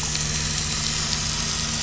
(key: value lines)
label: anthrophony, boat engine
recorder: SoundTrap 500